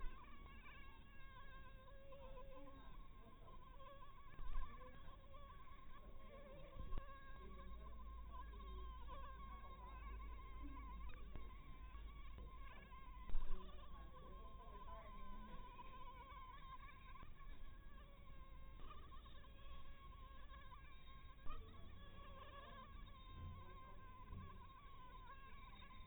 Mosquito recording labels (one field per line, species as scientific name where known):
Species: Anopheles harrisoni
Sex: female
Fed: blood-fed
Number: one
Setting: cup